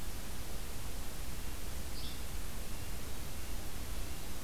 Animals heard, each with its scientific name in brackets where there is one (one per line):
Red-breasted Nuthatch (Sitta canadensis)
Yellow-bellied Flycatcher (Empidonax flaviventris)